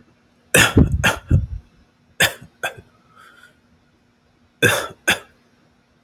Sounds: Cough